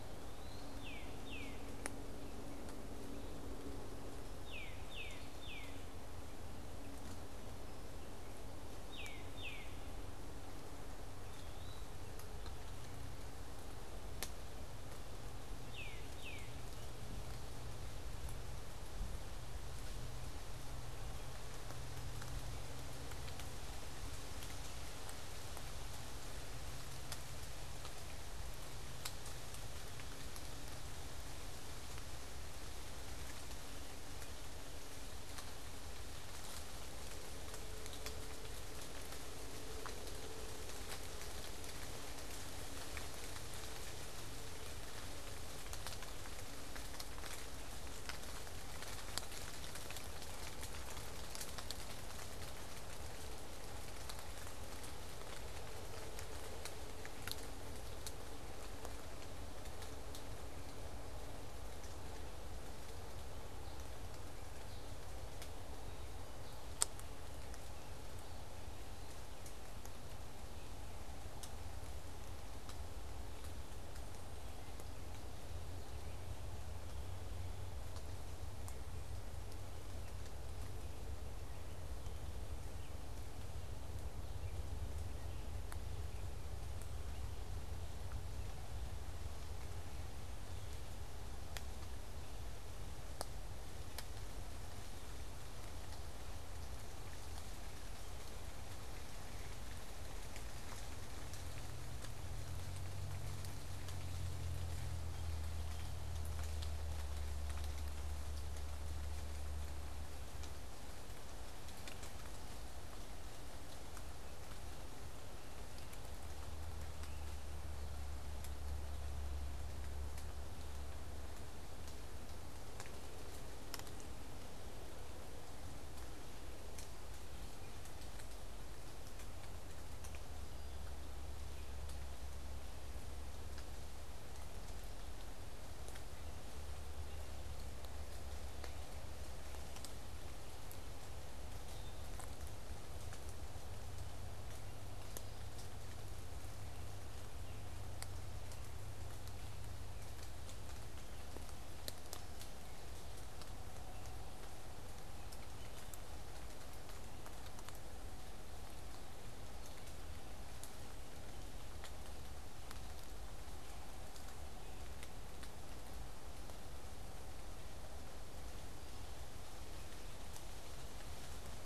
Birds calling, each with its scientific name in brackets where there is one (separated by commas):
unidentified bird, Eastern Wood-Pewee (Contopus virens), Tufted Titmouse (Baeolophus bicolor)